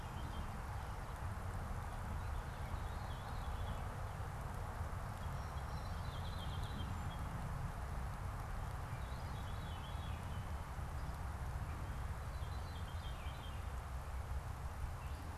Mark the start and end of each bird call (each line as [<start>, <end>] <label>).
[0.00, 3.90] Veery (Catharus fuscescens)
[5.00, 7.30] Song Sparrow (Melospiza melodia)
[8.60, 15.37] Veery (Catharus fuscescens)